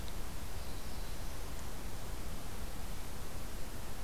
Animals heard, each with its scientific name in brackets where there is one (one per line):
Black-throated Blue Warbler (Setophaga caerulescens)